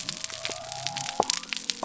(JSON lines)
{"label": "biophony", "recorder": "SoundTrap 300"}